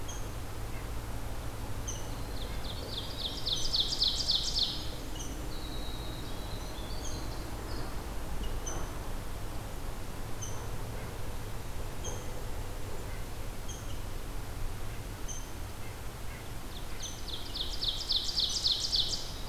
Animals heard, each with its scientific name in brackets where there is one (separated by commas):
Rose-breasted Grosbeak (Pheucticus ludovicianus), Red-breasted Nuthatch (Sitta canadensis), Ovenbird (Seiurus aurocapilla), Winter Wren (Troglodytes hiemalis)